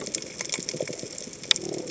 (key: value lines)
label: biophony
recorder: HydroMoth